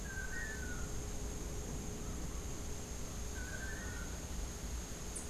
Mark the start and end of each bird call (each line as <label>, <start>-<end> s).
Long-tailed Manakin (Chiroxiphia linearis), 0.0-0.8 s
Long-tailed Manakin (Chiroxiphia linearis), 3.2-5.3 s